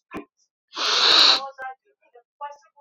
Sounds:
Sniff